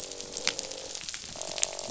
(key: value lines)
label: biophony, croak
recorder: SoundTrap 500